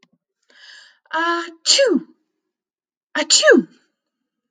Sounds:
Sneeze